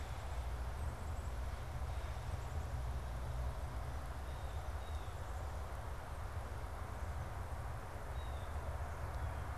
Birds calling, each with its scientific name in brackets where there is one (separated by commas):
unidentified bird, Blue Jay (Cyanocitta cristata)